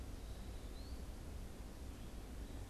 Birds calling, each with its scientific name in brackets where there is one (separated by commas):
Eastern Wood-Pewee (Contopus virens)